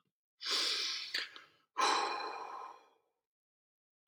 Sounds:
Sigh